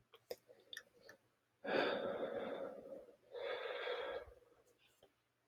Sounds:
Sigh